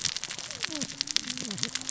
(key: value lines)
label: biophony, cascading saw
recorder: SoundTrap 600 or HydroMoth